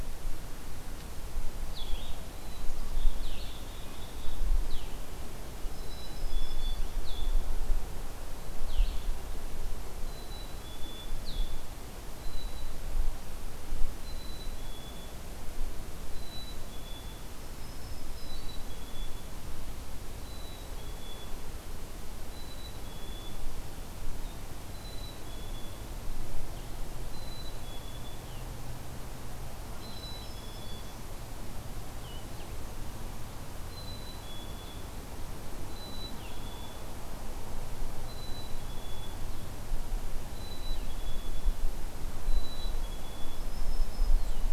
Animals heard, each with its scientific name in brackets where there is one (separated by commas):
Black-throated Green Warbler (Setophaga virens), Black-capped Chickadee (Poecile atricapillus), Blue-headed Vireo (Vireo solitarius)